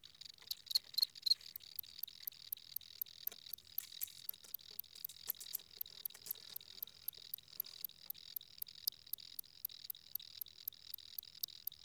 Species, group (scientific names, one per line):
Gryllus campestris
Orthoptera